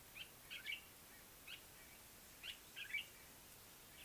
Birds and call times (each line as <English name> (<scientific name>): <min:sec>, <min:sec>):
Common Bulbul (Pycnonotus barbatus): 0:02.5